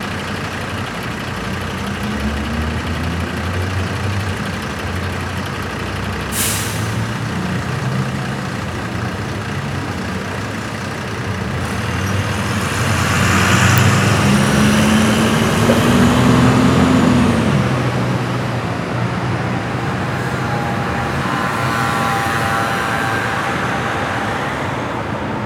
Is a vehicle driving away?
yes